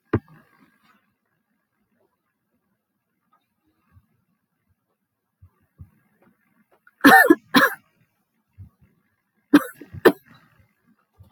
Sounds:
Cough